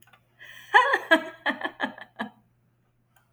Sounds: Laughter